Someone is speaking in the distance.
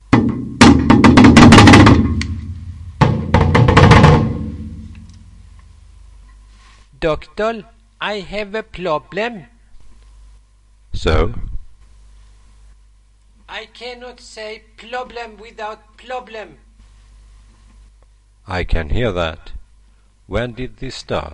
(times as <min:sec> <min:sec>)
0:13.5 0:16.6